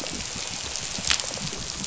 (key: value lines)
label: biophony, dolphin
recorder: SoundTrap 500

label: biophony, rattle response
recorder: SoundTrap 500